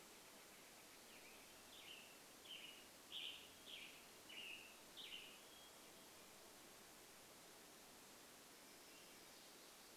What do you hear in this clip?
Northern Flicker call, Western Tanager song, Red-breasted Nuthatch song, Hermit Thrush song, warbler song